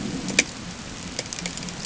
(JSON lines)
{"label": "ambient", "recorder": "HydroMoth"}